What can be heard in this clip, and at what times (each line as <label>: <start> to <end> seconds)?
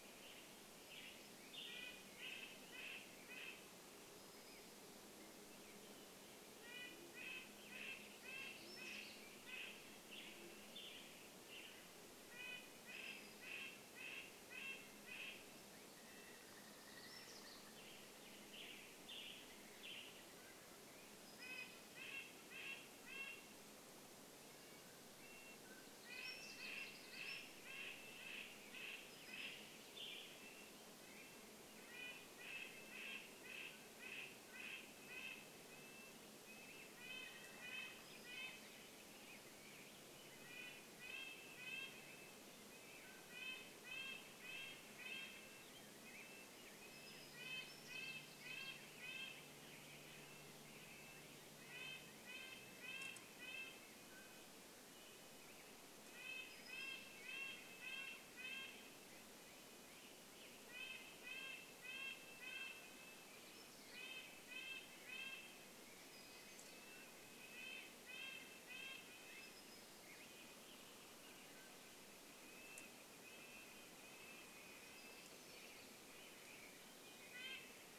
Red-breasted Nuthatch song: 0 to 4 seconds
Western Tanager song: 0 to 4 seconds
Black-headed Grosbeak song: 4 to 6 seconds
Band-tailed Pigeon call: 6 to 12 seconds
Red-breasted Nuthatch song: 6 to 16 seconds
Western Tanager song: 6 to 16 seconds
unidentified sound: 8 to 10 seconds
unidentified sound: 16 to 18 seconds
Western Tanager song: 18 to 20 seconds
Mountain Quail call: 20 to 22 seconds
Red-breasted Nuthatch song: 20 to 70 seconds
Mountain Quail call: 24 to 26 seconds
unidentified sound: 26 to 28 seconds
Western Tanager song: 28 to 36 seconds
Black-headed Grosbeak song: 30 to 32 seconds
Mountain Quail call: 32 to 36 seconds
bird wingbeats: 36 to 38 seconds
Black-headed Grosbeak song: 36 to 58 seconds
Mountain Quail call: 42 to 44 seconds
unidentified sound: 46 to 50 seconds
Mountain Quail call: 54 to 56 seconds
unidentified sound: 58 to 60 seconds
Western Tanager song: 60 to 62 seconds
unidentified sound: 62 to 64 seconds
Mountain Quail call: 66 to 68 seconds
unidentified sound: 66 to 70 seconds
Mountain Quail call: 70 to 72 seconds
Western Tanager song: 70 to 72 seconds
Northern Flicker call: 72 to 76 seconds
Red-breasted Nuthatch song: 72 to 78 seconds
unidentified sound: 74 to 76 seconds
Western Tanager song: 74 to 78 seconds